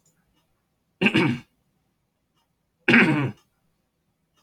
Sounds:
Throat clearing